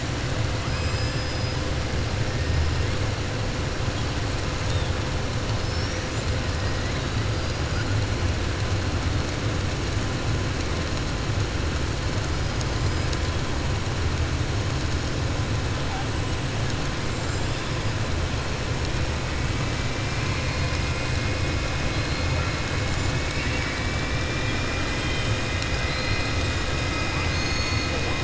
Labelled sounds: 0.6	1.6	killer whale, 1.7 to 5.2 kHz

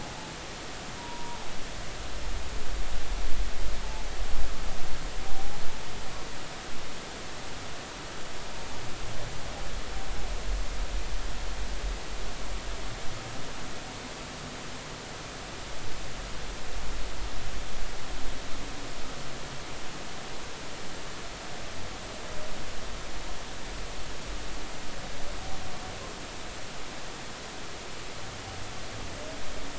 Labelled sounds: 1.0	1.5	humpback whale, 0.80 to 1.0 kHz
5.3	5.6	humpback whale, 0.80 to 0.86 kHz

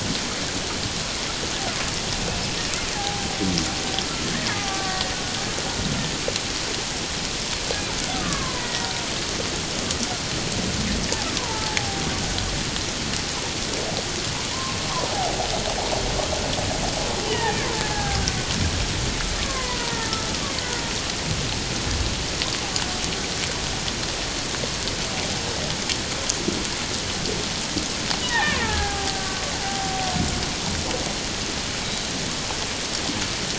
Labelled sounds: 2.3	3.3	killer whale, Bigg's (transient), 0.78 to 2.7 kHz
4.0	5.1	killer whale, Bigg's (transient), 0.78 to 1.9 kHz
8.1	8.9	killer whale, Bigg's (transient), 0.94 to 2.1 kHz
11.4	12.1	killer whale, Bigg's (transient), 0.78 to 1.1 kHz
14.5	15.3	killer whale, Bigg's (transient), 0.78 to 1.2 kHz
17.3	18.2	killer whale, Bigg's (transient), 0.78 to 2.0 kHz
19.4	20.1	killer whale, Bigg's (transient), 0.88 to 1.2 kHz
28.2	30.1	killer whale, Bigg's (transient), 0.78 to 2.0 kHz
31.8	32.1	killer whale, Bigg's (transient), 3.7 to 4.0 kHz

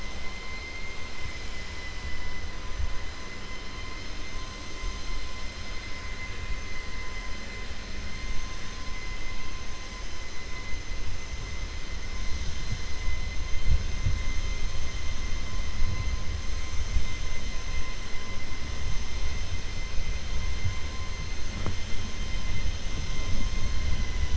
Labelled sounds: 0.3	1.6	vessel noise, 2.0 to 3.4 kHz

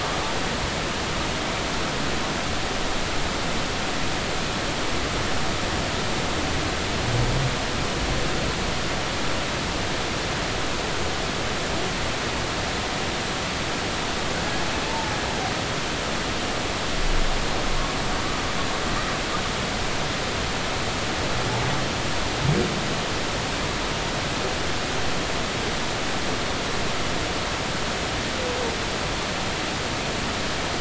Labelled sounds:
14.8	15.1	humpback whale, 0.83 to 0.96 kHz

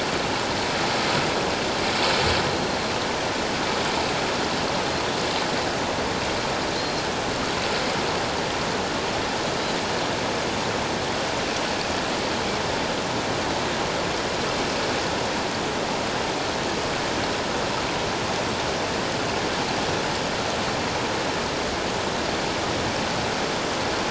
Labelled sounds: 6.8	7.1	Pacific white-sided dolphin, 4.0 to 4.3 kHz

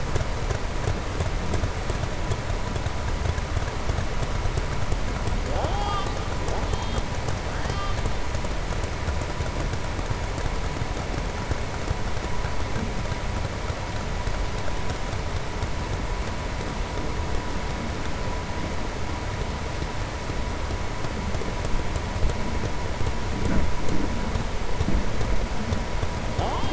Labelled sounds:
7.5	8.0	killer whale, southern resident, 1.1 to 6.2 kHz

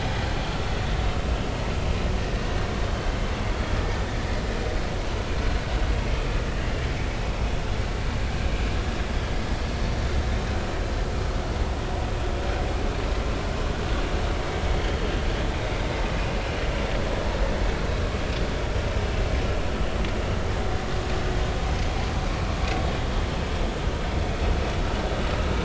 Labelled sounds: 3.5	4.0	vessel noise, 1.7 to 3.4 kHz

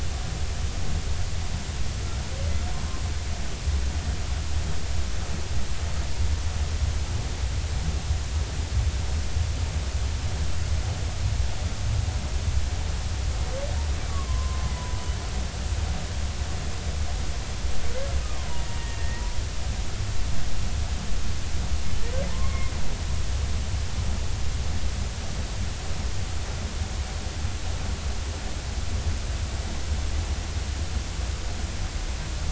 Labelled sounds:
14.1	15.0	humpback whale, 0.93 to 1.2 kHz
19.0	19.2	humpback whale, 1.8 to 2.0 kHz
22.3	22.7	humpback whale, 0.86 to 2.2 kHz

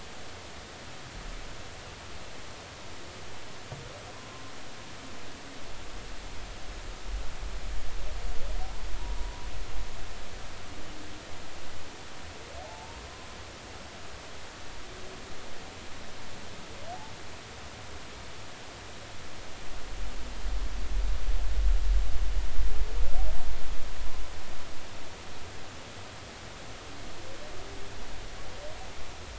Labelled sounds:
4.1	4.4	humpback whale, 0.99 to 1.1 kHz
9.2	9.5	humpback whale, 0.93 to 1.1 kHz
12.6	13.0	humpback whale, 0.80 to 0.99 kHz

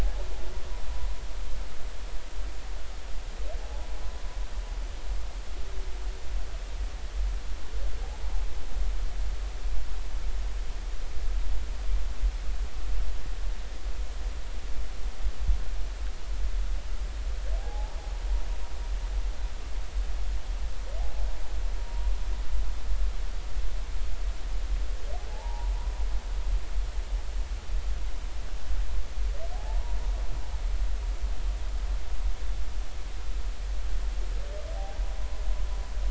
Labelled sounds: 0.0	0.2	humpback whale, 0.80 to 0.96 kHz
17.6	18.0	humpback whale, 0.80 to 0.96 kHz
25.3	25.7	humpback whale, 0.80 to 0.99 kHz
29.5	30.0	humpback whale, 0.80 to 0.99 kHz

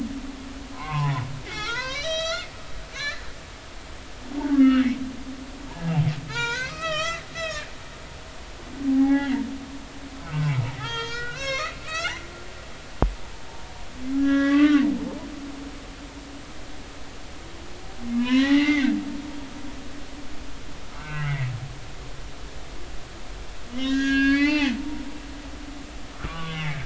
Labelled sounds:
1.5	2.5	humpback whale, 0.90 to 8.0 kHz
2.9	3.4	humpback whale, 1.5 to 7.3 kHz
4.5	4.9	humpback whale, 1.2 to 2.9 kHz
6.3	7.7	humpback whale, 0.86 to 7.3 kHz
8.9	9.4	humpback whale, 0.80 to 3.0 kHz
10.2	12.2	humpback whale, 0.80 to 7.7 kHz
14.2	14.9	humpback whale, 1.1 to 3.7 kHz
18.2	19.0	humpback whale, 0.80 to 4.1 kHz
21.0	21.5	humpback whale, 1.2 to 2.9 kHz
23.7	25.0	humpback whale, 0.80 to 6.7 kHz
26.1	26.8	humpback whale, 1.1 to 2.3 kHz

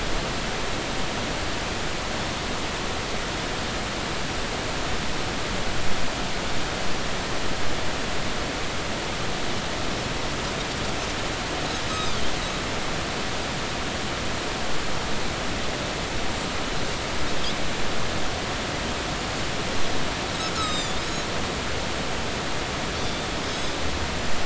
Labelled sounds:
11.9	12.2	Pacific white-sided dolphin, 3.2 to 6.4 kHz
20.5	21.0	Pacific white-sided dolphin, 1.2 to 8.0 kHz
23.0	23.8	Pacific white-sided dolphin, 3.2 to 6.5 kHz

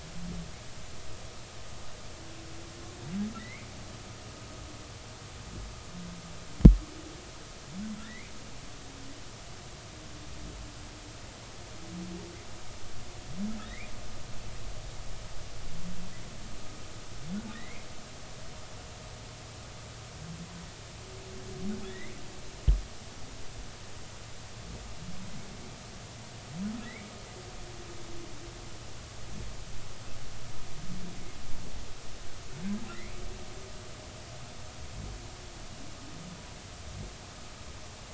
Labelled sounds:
3.4	3.7	humpback whale, 1.8 to 2.5 kHz
8.0	8.3	humpback whale, 1.6 to 2.2 kHz
13.6	13.9	humpback whale, 1.6 to 2.5 kHz
17.5	17.9	humpback whale, 1.8 to 2.6 kHz
21.9	22.1	humpback whale, 1.7 to 2.2 kHz
32.9	33.2	humpback whale, 1.8 to 2.4 kHz

